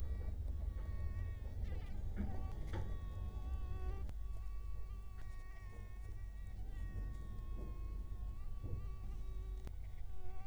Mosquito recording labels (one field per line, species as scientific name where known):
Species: Culex quinquefasciatus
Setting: cup